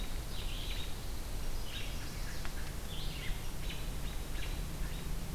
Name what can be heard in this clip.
Red-eyed Vireo, Chestnut-sided Warbler